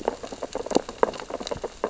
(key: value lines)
label: biophony, sea urchins (Echinidae)
recorder: SoundTrap 600 or HydroMoth